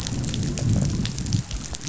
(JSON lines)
{"label": "biophony, growl", "recorder": "SoundTrap 500"}